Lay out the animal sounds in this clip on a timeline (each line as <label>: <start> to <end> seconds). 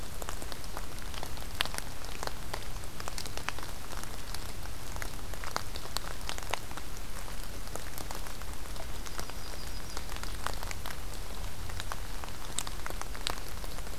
Yellow-rumped Warbler (Setophaga coronata): 8.8 to 10.1 seconds